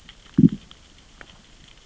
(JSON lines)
{"label": "biophony, growl", "recorder": "SoundTrap 600 or HydroMoth"}